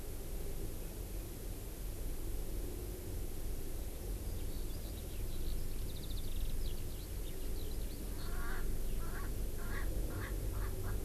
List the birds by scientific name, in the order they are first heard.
Alauda arvensis, Pternistis erckelii